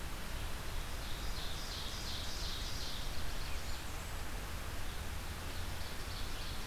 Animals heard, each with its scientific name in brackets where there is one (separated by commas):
Ovenbird (Seiurus aurocapilla), Red-eyed Vireo (Vireo olivaceus), Blackburnian Warbler (Setophaga fusca)